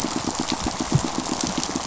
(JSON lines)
{"label": "biophony, pulse", "recorder": "SoundTrap 500"}